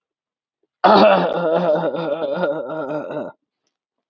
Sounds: Cough